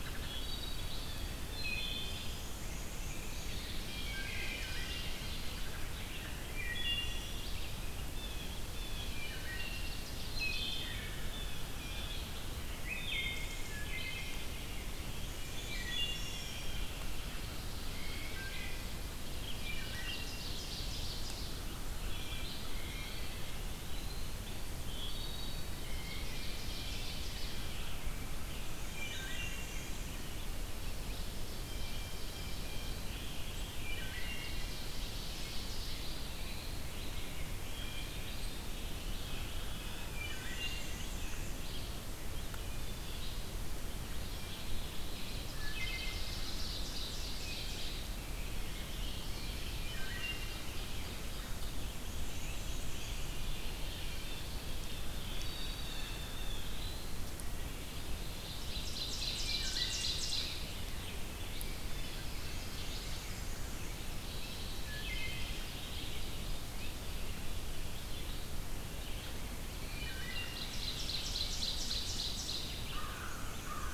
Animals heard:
Black-and-white Warbler (Mniotilta varia)
Blue Jay (Cyanocitta cristata)
Ovenbird (Seiurus aurocapilla)
Wood Thrush (Hylocichla mustelina)
Eastern Wood-Pewee (Contopus virens)
American Crow (Corvus brachyrhynchos)
Red-eyed Vireo (Vireo olivaceus)

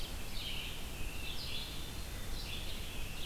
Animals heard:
Red-eyed Vireo (Vireo olivaceus)
Hermit Thrush (Catharus guttatus)

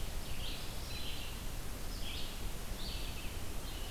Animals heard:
Red-eyed Vireo (Vireo olivaceus)
unidentified call

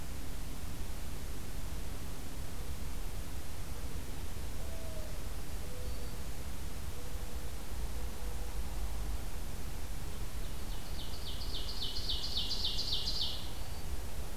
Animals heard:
Mourning Dove (Zenaida macroura)
Black-throated Green Warbler (Setophaga virens)
Ovenbird (Seiurus aurocapilla)

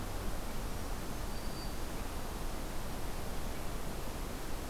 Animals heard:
Black-throated Green Warbler (Setophaga virens)

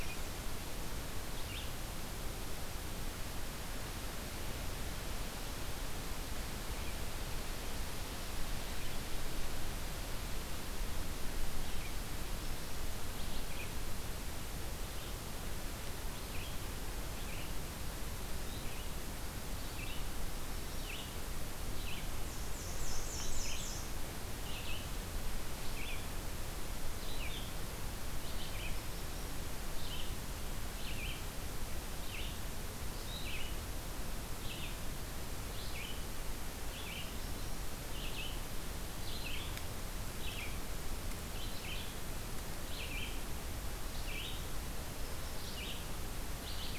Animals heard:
American Redstart (Setophaga ruticilla)
Red-eyed Vireo (Vireo olivaceus)

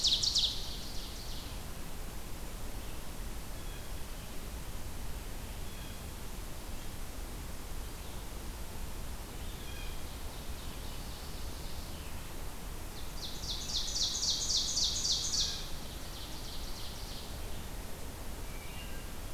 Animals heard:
Ovenbird (Seiurus aurocapilla)
Blue Jay (Cyanocitta cristata)
Wood Thrush (Hylocichla mustelina)

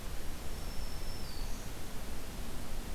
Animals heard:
Black-throated Green Warbler (Setophaga virens)

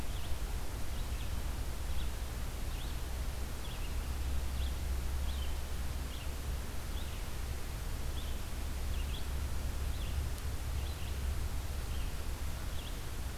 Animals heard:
Red-eyed Vireo (Vireo olivaceus)

